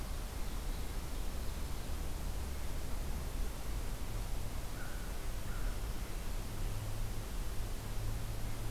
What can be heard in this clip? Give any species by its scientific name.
Corvus brachyrhynchos